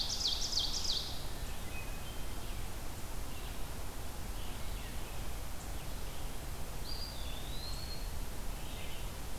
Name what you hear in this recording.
Ovenbird, Red-eyed Vireo, Hermit Thrush, Eastern Wood-Pewee